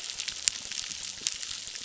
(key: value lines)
label: biophony, crackle
recorder: SoundTrap 600

label: biophony
recorder: SoundTrap 600